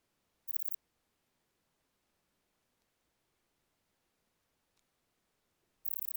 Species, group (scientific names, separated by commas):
Pachytrachis gracilis, Orthoptera